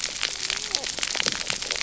{"label": "biophony, cascading saw", "recorder": "SoundTrap 300"}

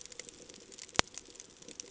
{"label": "ambient", "recorder": "HydroMoth"}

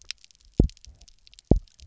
{"label": "biophony, double pulse", "recorder": "SoundTrap 300"}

